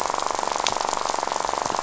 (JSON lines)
{"label": "biophony, rattle", "recorder": "SoundTrap 500"}